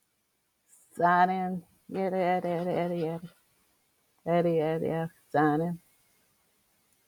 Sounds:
Sigh